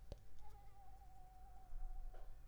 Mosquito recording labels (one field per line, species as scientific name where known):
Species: Anopheles arabiensis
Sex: female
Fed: unfed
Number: one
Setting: cup